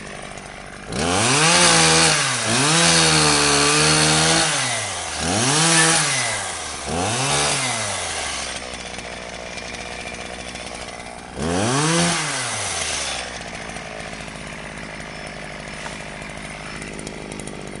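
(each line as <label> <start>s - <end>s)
A chainsaw is sawing continuously nearby. 0.0s - 0.9s
A chainsaw is sawing continuously and repeatedly nearby. 0.9s - 8.9s
A chainsaw slows down nearby. 8.9s - 11.3s
A chainsaw starts rapidly and loudly nearby. 11.3s - 13.4s
A chainsaw runs continuously and then slows down nearby. 13.4s - 17.8s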